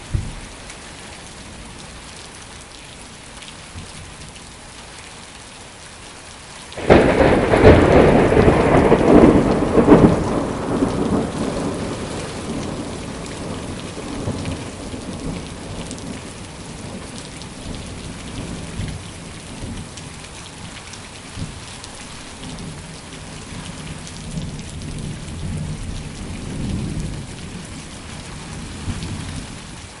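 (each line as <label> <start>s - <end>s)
Heavy rain is pouring down. 0.0s - 30.0s
A loud thunderclap. 6.7s - 12.3s
The echo of a thunder strike fades away. 12.3s - 29.9s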